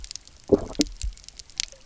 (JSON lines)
{"label": "biophony", "recorder": "SoundTrap 300"}